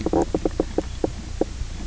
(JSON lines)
{"label": "biophony, knock croak", "recorder": "SoundTrap 300"}